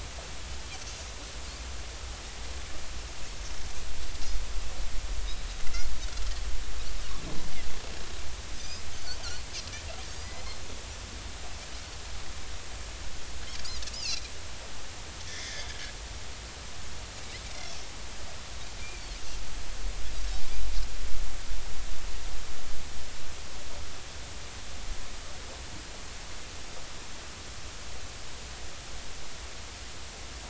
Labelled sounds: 8.6	8.8	Pacific white-sided dolphin, 4.7 to 5.3 kHz
10.2	10.4	Pacific white-sided dolphin, 4.7 to 5.2 kHz
13.6	14.2	Pacific white-sided dolphin, 2.2 to 5.2 kHz
15.3	15.7	Pacific white-sided dolphin, 1.6 to 3.6 kHz
18.8	19.1	Pacific white-sided dolphin, 2.2 to 2.5 kHz

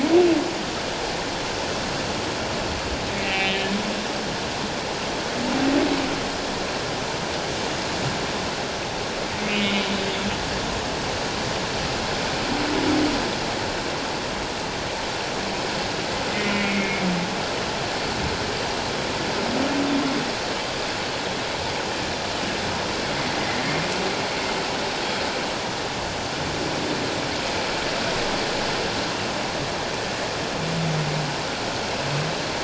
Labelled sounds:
3.2	3.6	humpback whale, 1.9 to 2.8 kHz
9.4	9.9	humpback whale, 2.1 to 3.1 kHz
16.5	17.1	humpback whale, 2.1 to 2.4 kHz

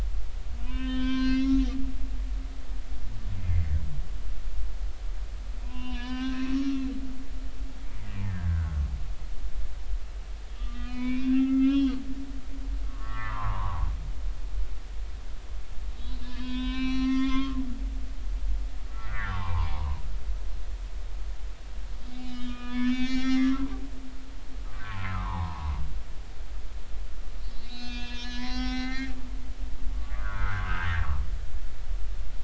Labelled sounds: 0.6	1.7	humpback whale, 0.96 to 6.0 kHz
5.6	6.9	humpback whale, 0.90 to 5.8 kHz
8.2	8.7	humpback whale, 1.4 to 1.9 kHz
10.6	12.0	humpback whale, 0.93 to 4.2 kHz
12.9	13.9	humpback whale, 0.80 to 2.1 kHz
16.0	17.6	humpback whale, 0.96 to 6.1 kHz
18.9	20.0	humpback whale, 0.80 to 2.4 kHz
22.1	23.6	humpback whale, 0.80 to 7.0 kHz
24.8	25.7	humpback whale, 0.80 to 1.4 kHz
27.5	29.1	humpback whale, 0.80 to 6.7 kHz
29.9	30.6	humpback whale, 1.0 to 1.7 kHz

